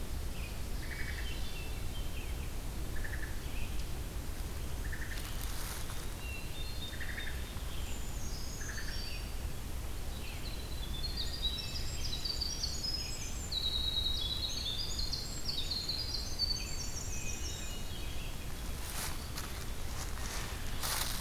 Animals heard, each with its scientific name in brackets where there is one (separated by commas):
Eastern Wood-Pewee (Contopus virens), Wood Thrush (Hylocichla mustelina), Ovenbird (Seiurus aurocapilla), Hermit Thrush (Catharus guttatus), Brown Creeper (Certhia americana), American Robin (Turdus migratorius), Winter Wren (Troglodytes hiemalis)